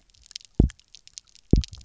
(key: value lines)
label: biophony, double pulse
recorder: SoundTrap 300